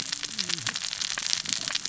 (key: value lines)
label: biophony, cascading saw
recorder: SoundTrap 600 or HydroMoth